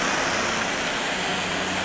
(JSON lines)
{"label": "anthrophony, boat engine", "recorder": "SoundTrap 500"}